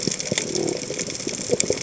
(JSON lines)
{"label": "biophony", "recorder": "HydroMoth"}